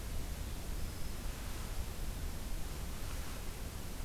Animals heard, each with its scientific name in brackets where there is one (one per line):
Black-throated Green Warbler (Setophaga virens)